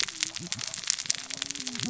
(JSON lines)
{"label": "biophony, cascading saw", "recorder": "SoundTrap 600 or HydroMoth"}